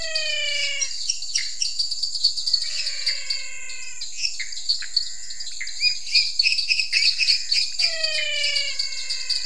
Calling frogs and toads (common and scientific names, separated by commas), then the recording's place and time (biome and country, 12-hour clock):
lesser tree frog (Dendropsophus minutus), dwarf tree frog (Dendropsophus nanus), menwig frog (Physalaemus albonotatus), Pithecopus azureus
Cerrado, Brazil, 8:30pm